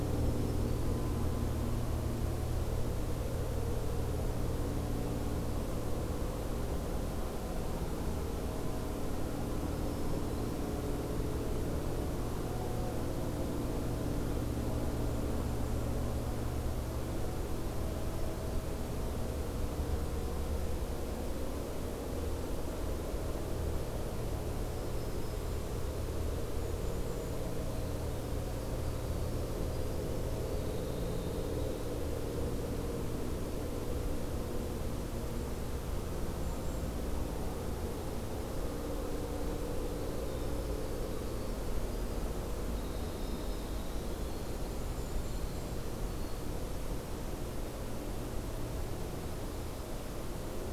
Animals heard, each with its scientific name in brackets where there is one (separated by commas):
Golden-crowned Kinglet (Regulus satrapa), Winter Wren (Troglodytes hiemalis), Black-throated Green Warbler (Setophaga virens), Brown Creeper (Certhia americana)